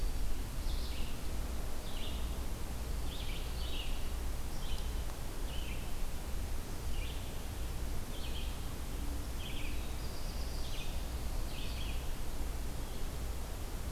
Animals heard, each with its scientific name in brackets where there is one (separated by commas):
Red-eyed Vireo (Vireo olivaceus), Black-throated Blue Warbler (Setophaga caerulescens)